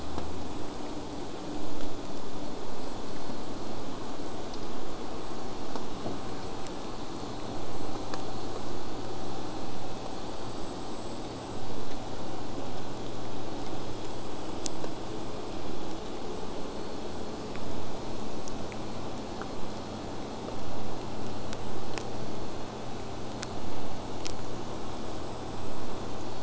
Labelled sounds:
14.4	16.7	killer whale, southern resident, J pod, 7.9 to 8.0 kHz

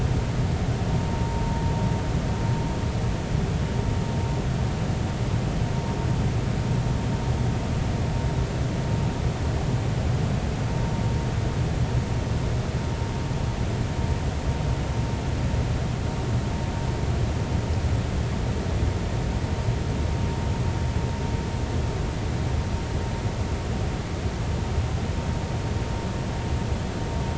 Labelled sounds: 1.0	1.4	vessel noise, 0.90 to 0.96 kHz

